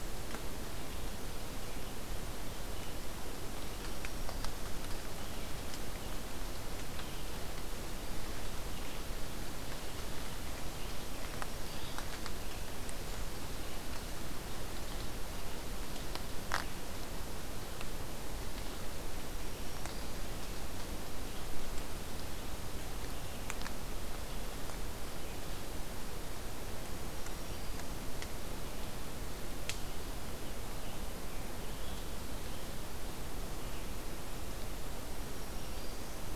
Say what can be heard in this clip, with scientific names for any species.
Setophaga virens, Piranga olivacea